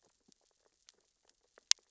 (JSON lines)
{"label": "biophony, sea urchins (Echinidae)", "recorder": "SoundTrap 600 or HydroMoth"}